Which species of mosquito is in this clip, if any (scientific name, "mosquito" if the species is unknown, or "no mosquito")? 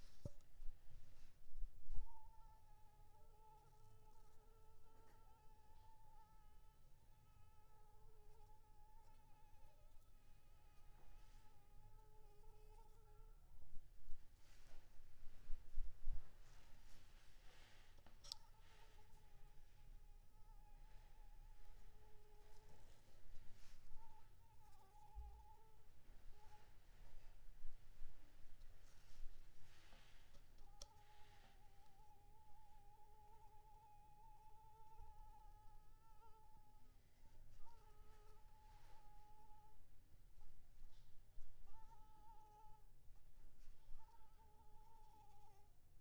Anopheles arabiensis